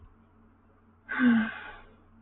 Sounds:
Sigh